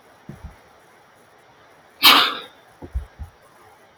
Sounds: Sneeze